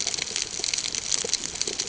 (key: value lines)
label: ambient
recorder: HydroMoth